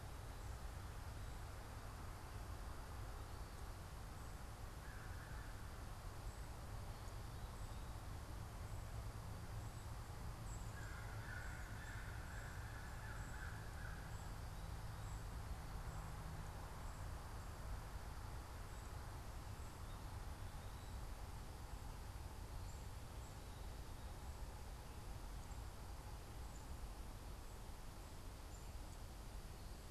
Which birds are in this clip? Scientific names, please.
Corvus brachyrhynchos